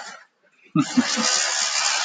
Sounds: Laughter